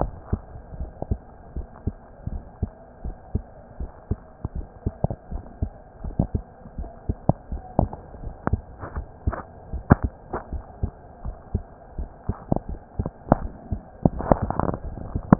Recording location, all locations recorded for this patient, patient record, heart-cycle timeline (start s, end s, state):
mitral valve (MV)
aortic valve (AV)+pulmonary valve (PV)+tricuspid valve (TV)+mitral valve (MV)
#Age: Child
#Sex: Male
#Height: 138.0 cm
#Weight: 25.0 kg
#Pregnancy status: False
#Murmur: Absent
#Murmur locations: nan
#Most audible location: nan
#Systolic murmur timing: nan
#Systolic murmur shape: nan
#Systolic murmur grading: nan
#Systolic murmur pitch: nan
#Systolic murmur quality: nan
#Diastolic murmur timing: nan
#Diastolic murmur shape: nan
#Diastolic murmur grading: nan
#Diastolic murmur pitch: nan
#Diastolic murmur quality: nan
#Outcome: Normal
#Campaign: 2015 screening campaign
0.00	1.54	unannotated
1.54	1.66	S1
1.66	1.84	systole
1.84	1.94	S2
1.94	2.26	diastole
2.26	2.42	S1
2.42	2.58	systole
2.58	2.70	S2
2.70	3.01	diastole
3.01	3.16	S1
3.16	3.32	systole
3.32	3.46	S2
3.46	3.75	diastole
3.75	3.90	S1
3.90	4.06	systole
4.06	4.18	S2
4.18	4.52	diastole
4.52	4.66	S1
4.66	4.82	systole
4.82	4.94	S2
4.94	5.28	diastole
5.28	5.44	S1
5.44	5.58	systole
5.58	5.74	S2
5.74	6.01	diastole
6.01	6.16	S1
6.16	6.30	systole
6.30	6.44	S2
6.44	6.75	diastole
6.75	6.90	S1
6.90	7.06	systole
7.06	7.20	S2
7.20	7.50	diastole
7.50	7.62	S1
7.62	7.80	systole
7.80	7.94	S2
7.94	8.18	diastole
8.18	8.34	S1
8.34	8.48	systole
8.48	8.64	S2
8.64	8.91	diastole
8.91	9.06	S1
9.06	9.23	systole
9.23	9.34	S2
9.34	9.70	diastole
9.70	9.84	S1
9.84	10.01	systole
10.01	10.16	S2
10.16	10.49	diastole
10.49	10.64	S1
10.64	10.79	systole
10.79	10.94	S2
10.94	11.21	diastole
11.21	11.36	S1
11.36	11.50	systole
11.50	11.64	S2
11.64	11.94	diastole
11.94	12.10	S1
12.10	12.24	systole
12.24	12.38	S2
12.38	12.66	diastole
12.66	12.80	S1
12.80	12.94	systole
12.94	13.06	S2
13.06	13.38	diastole
13.38	13.51	S1
13.51	13.67	systole
13.67	13.82	S2
13.82	15.39	unannotated